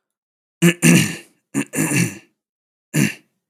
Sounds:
Throat clearing